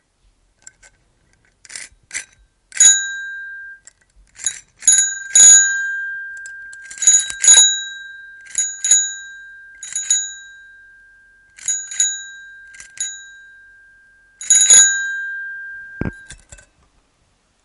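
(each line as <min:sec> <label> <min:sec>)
0:01.6 High-pitched metallic noise in a steady pattern. 0:02.3
0:02.7 A sudden metallic ringing noise that fades and echoes. 0:04.0
0:04.3 A bell rings clearly and brightly in repetitive bursts with slight pauses, accompanied by a metallic sound of the lever mechanism resetting. 0:10.7
0:10.8 A monotonic, continuous metallic ringing that fades. 0:11.6
0:11.6 A bell is pressed multiple times, producing clear, bright, high-pitched ringing in repetitive bursts with slight pauses, accompanied by the metallic sound of the lever resetting. 0:13.5
0:13.5 A monotonic, continuous metallic ringing that fades. 0:14.4
0:14.4 A bell is pressed multiple times, producing a clear, bright, high-pitched ringing in repetitive bursts with slight pauses, accompanied by a metallic sound of the lever mechanism resetting that fades and echoes. 0:16.0
0:16.0 An unintelligible high-pitched noise. 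0:16.7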